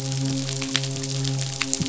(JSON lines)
{"label": "biophony, midshipman", "recorder": "SoundTrap 500"}